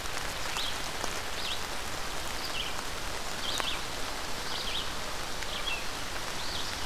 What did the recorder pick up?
Red-eyed Vireo